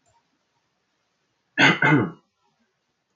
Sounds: Throat clearing